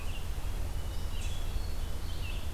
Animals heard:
Red-eyed Vireo (Vireo olivaceus), Eastern Chipmunk (Tamias striatus), Hermit Thrush (Catharus guttatus)

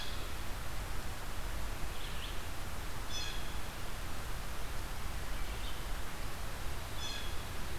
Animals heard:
Red-eyed Vireo (Vireo olivaceus), Blue Jay (Cyanocitta cristata)

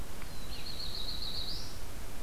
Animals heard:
Black-throated Blue Warbler (Setophaga caerulescens), Red-eyed Vireo (Vireo olivaceus)

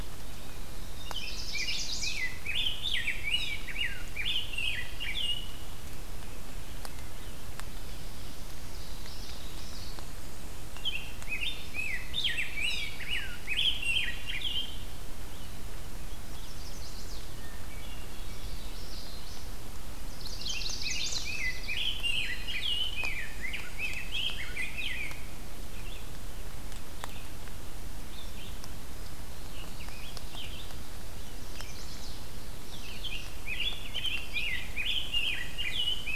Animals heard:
Chestnut-sided Warbler (Setophaga pensylvanica), Hermit Thrush (Catharus guttatus), Rose-breasted Grosbeak (Pheucticus ludovicianus), Black-capped Chickadee (Poecile atricapillus), Common Yellowthroat (Geothlypis trichas), Red-eyed Vireo (Vireo olivaceus)

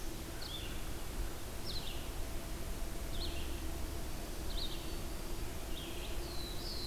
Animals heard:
Red-eyed Vireo (Vireo olivaceus), Black-throated Blue Warbler (Setophaga caerulescens), Black-throated Green Warbler (Setophaga virens)

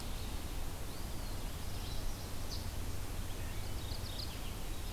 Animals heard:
Chestnut-sided Warbler (Setophaga pensylvanica), Eastern Wood-Pewee (Contopus virens), Mourning Warbler (Geothlypis philadelphia)

